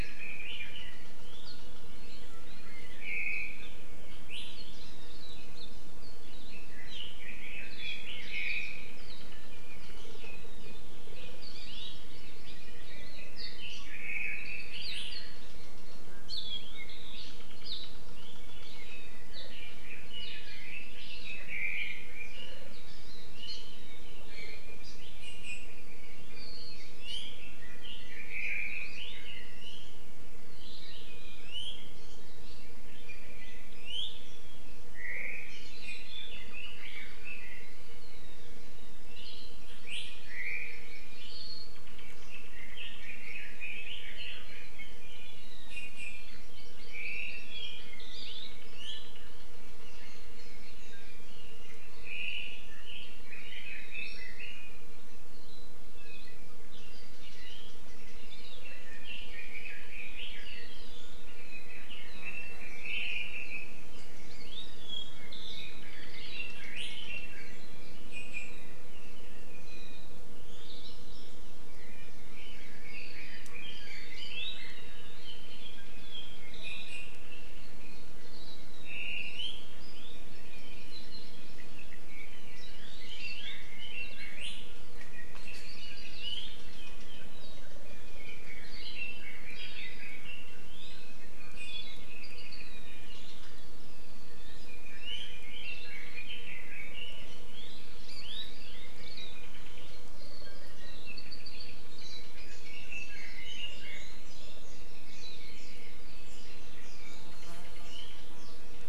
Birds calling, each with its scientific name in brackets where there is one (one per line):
Hawaii Akepa (Loxops coccineus)
Apapane (Himatione sanguinea)
Red-billed Leiothrix (Leiothrix lutea)
Hawaii Amakihi (Chlorodrepanis virens)
Iiwi (Drepanis coccinea)